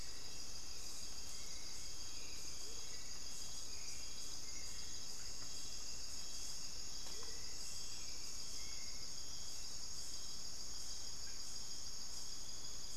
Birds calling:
Hauxwell's Thrush (Turdus hauxwelli), Amazonian Motmot (Momotus momota)

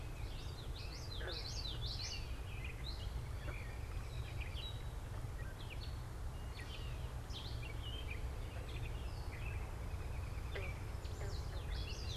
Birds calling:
American Robin (Turdus migratorius), Gray Catbird (Dumetella carolinensis), Common Yellowthroat (Geothlypis trichas)

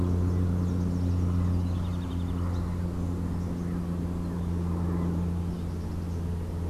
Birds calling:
House Wren (Troglodytes aedon)

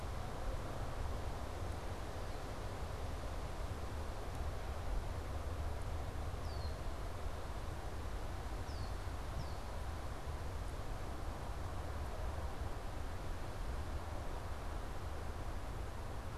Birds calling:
Red-winged Blackbird (Agelaius phoeniceus)

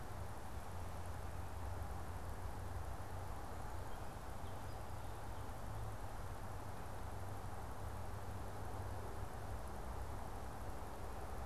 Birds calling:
Song Sparrow (Melospiza melodia)

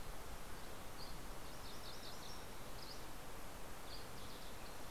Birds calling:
Green-tailed Towhee (Pipilo chlorurus), MacGillivray's Warbler (Geothlypis tolmiei), Dusky Flycatcher (Empidonax oberholseri)

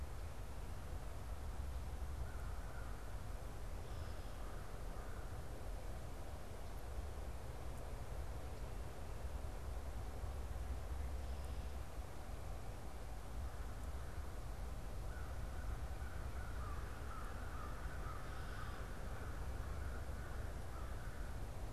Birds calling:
American Crow (Corvus brachyrhynchos)

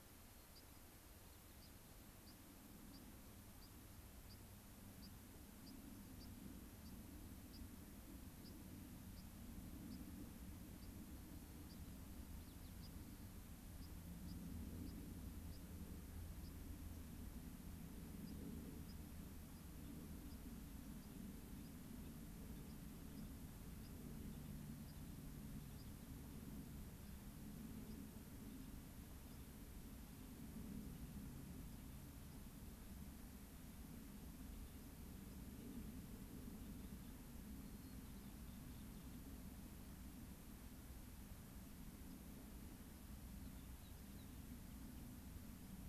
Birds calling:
White-crowned Sparrow (Zonotrichia leucophrys), American Pipit (Anthus rubescens)

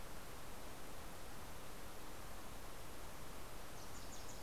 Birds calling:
Wilson's Warbler (Cardellina pusilla)

